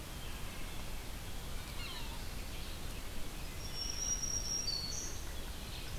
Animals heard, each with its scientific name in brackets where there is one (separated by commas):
Black-throated Green Warbler (Setophaga virens), Red-eyed Vireo (Vireo olivaceus), Wood Thrush (Hylocichla mustelina), Yellow-bellied Sapsucker (Sphyrapicus varius)